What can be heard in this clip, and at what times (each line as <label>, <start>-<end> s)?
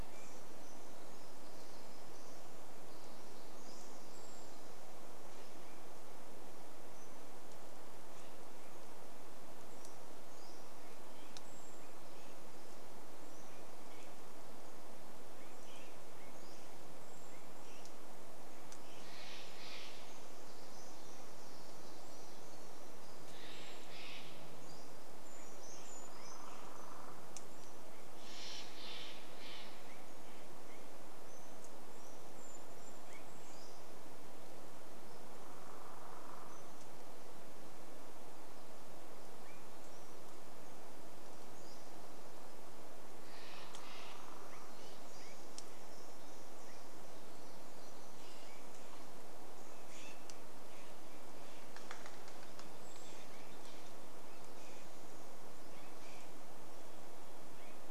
unidentified sound, 0-6 s
Brown Creeper call, 4-6 s
unidentified bird chip note, 6-8 s
unidentified sound, 8-10 s
Pacific-slope Flycatcher song, 8-18 s
Brown Creeper call, 10-12 s
unidentified sound, 12-18 s
Steller's Jay call, 18-20 s
Pacific-slope Flycatcher song, 20-28 s
Brown Creeper call, 22-24 s
Steller's Jay call, 22-26 s
Brown Creeper song, 24-26 s
woodpecker drumming, 26-28 s
Steller's Jay call, 28-30 s
unidentified sound, 30-34 s
Brown Creeper song, 32-34 s
Pacific-slope Flycatcher song, 32-34 s
woodpecker drumming, 34-38 s
unidentified bird chip note, 36-38 s
unidentified sound, 38-40 s
Pacific-slope Flycatcher song, 40-42 s
Steller's Jay call, 42-44 s
woodpecker drumming, 42-46 s
unidentified sound, 44-58 s
woodpecker drumming, 50-54 s
Brown Creeper call, 52-54 s